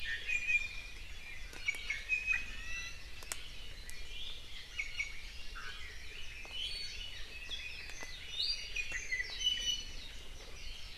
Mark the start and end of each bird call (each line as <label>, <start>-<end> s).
Iiwi (Drepanis coccinea), 0.0-1.0 s
Iiwi (Drepanis coccinea), 1.6-3.0 s
Hawaii Amakihi (Chlorodrepanis virens), 4.2-6.1 s
Iiwi (Drepanis coccinea), 4.7-5.2 s
Iiwi (Drepanis coccinea), 6.5-7.2 s
Red-billed Leiothrix (Leiothrix lutea), 7.3-9.3 s
Warbling White-eye (Zosterops japonicus), 7.4-10.6 s
Iiwi (Drepanis coccinea), 8.3-8.8 s
Iiwi (Drepanis coccinea), 9.4-10.0 s